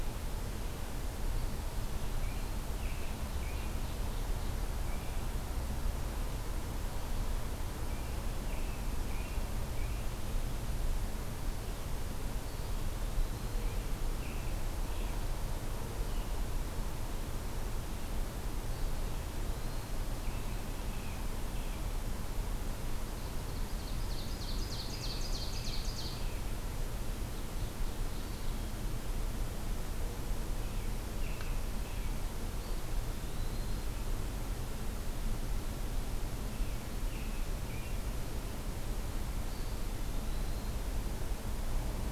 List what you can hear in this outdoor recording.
American Robin, Ovenbird, Eastern Wood-Pewee